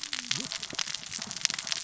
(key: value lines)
label: biophony, cascading saw
recorder: SoundTrap 600 or HydroMoth